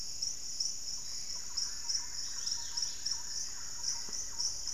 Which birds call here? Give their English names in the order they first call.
Thrush-like Wren, Wing-barred Piprites, Dusky-capped Greenlet, Lemon-throated Barbet